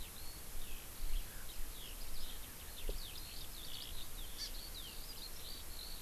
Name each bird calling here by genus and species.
Alauda arvensis, Chlorodrepanis virens